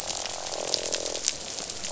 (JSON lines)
{"label": "biophony, croak", "recorder": "SoundTrap 500"}